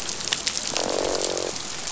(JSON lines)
{"label": "biophony, croak", "recorder": "SoundTrap 500"}